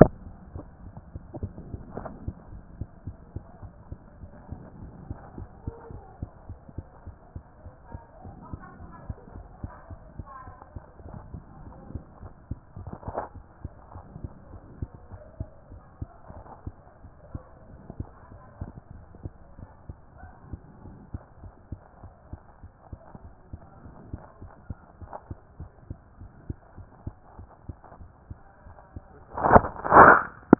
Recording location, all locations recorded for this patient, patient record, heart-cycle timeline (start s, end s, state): mitral valve (MV)
aortic valve (AV)+pulmonary valve (PV)+tricuspid valve (TV)+mitral valve (MV)
#Age: Child
#Sex: Female
#Height: 132.0 cm
#Weight: 33.4 kg
#Pregnancy status: False
#Murmur: Absent
#Murmur locations: nan
#Most audible location: nan
#Systolic murmur timing: nan
#Systolic murmur shape: nan
#Systolic murmur grading: nan
#Systolic murmur pitch: nan
#Systolic murmur quality: nan
#Diastolic murmur timing: nan
#Diastolic murmur shape: nan
#Diastolic murmur grading: nan
#Diastolic murmur pitch: nan
#Diastolic murmur quality: nan
#Outcome: Abnormal
#Campaign: 2014 screening campaign
0.16	0.30	diastole
0.30	0.40	S1
0.40	0.52	systole
0.52	0.66	S2
0.66	0.82	diastole
0.82	0.96	S1
0.96	1.12	systole
1.12	1.24	S2
1.24	1.40	diastole
1.40	1.54	S1
1.54	1.70	systole
1.70	1.82	S2
1.82	1.96	diastole
1.96	2.10	S1
2.10	2.22	systole
2.22	2.38	S2
2.38	2.52	diastole
2.52	2.64	S1
2.64	2.76	systole
2.76	2.90	S2
2.90	3.06	diastole
3.06	3.18	S1
3.18	3.32	systole
3.32	3.44	S2
3.44	3.62	diastole
3.62	3.72	S1
3.72	3.88	systole
3.88	4.00	S2
4.00	4.18	diastole
4.18	4.32	S1
4.32	4.48	systole
4.48	4.62	S2
4.62	4.80	diastole
4.80	4.94	S1
4.94	5.08	systole
5.08	5.18	S2
5.18	5.34	diastole
5.34	5.48	S1
5.48	5.62	systole
5.62	5.76	S2
5.76	5.90	diastole
5.90	6.02	S1
6.02	6.18	systole
6.18	6.30	S2
6.30	6.48	diastole
6.48	6.60	S1
6.60	6.76	systole
6.76	6.88	S2
6.88	7.06	diastole
7.06	7.16	S1
7.16	7.32	systole
7.32	7.44	S2
7.44	7.64	diastole
7.64	7.74	S1
7.74	7.90	systole
7.90	8.04	S2
8.04	8.22	diastole
8.22	8.36	S1
8.36	8.50	systole
8.50	8.62	S2
8.62	8.78	diastole
8.78	8.90	S1
8.90	9.06	systole
9.06	9.18	S2
9.18	9.34	diastole
9.34	9.46	S1
9.46	9.62	systole
9.62	9.74	S2
9.74	9.90	diastole
9.90	10.00	S1
10.00	10.14	systole
10.14	10.28	S2
10.28	10.46	diastole
10.46	10.56	S1
10.56	10.74	systole
10.74	10.86	S2
10.86	11.04	diastole
11.04	11.16	S1
11.16	11.32	systole
11.32	11.44	S2
11.44	11.60	diastole
11.60	11.74	S1
11.74	11.90	systole
11.90	12.02	S2
12.02	12.20	diastole
12.20	12.32	S1
12.32	12.48	systole
12.48	12.62	S2
12.62	12.78	diastole
12.78	12.92	S1
12.92	13.04	systole
13.04	13.16	S2
13.16	13.34	diastole
13.34	13.44	S1
13.44	13.60	systole
13.60	13.74	S2
13.74	13.92	diastole
13.92	14.04	S1
14.04	14.22	systole
14.22	14.34	S2
14.34	14.50	diastole
14.50	14.62	S1
14.62	14.76	systole
14.76	14.92	S2
14.92	15.12	diastole
15.12	15.22	S1
15.22	15.36	systole
15.36	15.52	S2
15.52	15.70	diastole
15.70	15.82	S1
15.82	15.98	systole
15.98	16.12	S2
16.12	16.30	diastole
16.30	16.44	S1
16.44	16.62	systole
16.62	16.78	S2
16.78	17.00	diastole
17.00	17.10	S1
17.10	17.30	systole
17.30	17.44	S2
17.44	17.66	diastole
17.66	17.80	S1
17.80	17.98	systole
17.98	18.14	S2
18.14	18.32	diastole
18.32	18.42	S1
18.42	18.60	systole
18.60	18.72	S2
18.72	18.90	diastole
18.90	19.04	S1
19.04	19.22	systole
19.22	19.36	S2
19.36	19.56	diastole
19.56	19.68	S1
19.68	19.88	systole
19.88	20.00	S2
20.00	20.20	diastole
20.20	20.34	S1
20.34	20.52	systole
20.52	20.64	S2
20.64	20.82	diastole
20.82	20.94	S1
20.94	21.10	systole
21.10	21.24	S2
21.24	21.42	diastole
21.42	21.52	S1
21.52	21.68	systole
21.68	21.82	S2
21.82	22.02	diastole
22.02	22.12	S1
22.12	22.30	systole
22.30	22.42	S2
22.42	22.62	diastole
22.62	22.72	S1
22.72	22.88	systole
22.88	23.02	S2
23.02	23.24	diastole
23.24	23.34	S1
23.34	23.52	systole
23.52	23.64	S2
23.64	23.84	diastole
23.84	23.96	S1
23.96	24.12	systole
24.12	24.26	S2
24.26	24.42	diastole
24.42	24.52	S1
24.52	24.66	systole
24.66	24.80	S2
24.80	25.00	diastole
25.00	25.10	S1
25.10	25.28	systole
25.28	25.40	S2
25.40	25.58	diastole
25.58	25.72	S1
25.72	25.88	systole
25.88	26.00	S2
26.00	26.20	diastole
26.20	26.32	S1
26.32	26.46	systole
26.46	26.60	S2
26.60	26.78	diastole
26.78	26.88	S1
26.88	27.04	systole
27.04	27.18	S2
27.18	27.38	diastole
27.38	27.50	S1
27.50	27.68	systole
27.68	27.80	S2
27.80	28.00	diastole
28.00	28.12	S1
28.12	28.28	systole
28.28	28.40	S2
28.40	28.46	diastole